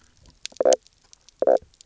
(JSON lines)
{"label": "biophony, knock croak", "recorder": "SoundTrap 300"}